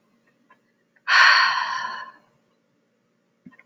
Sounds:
Sigh